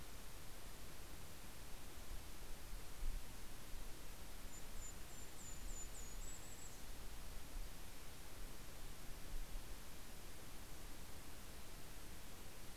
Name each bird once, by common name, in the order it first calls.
Yellow-rumped Warbler